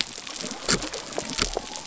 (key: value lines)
label: biophony
recorder: SoundTrap 300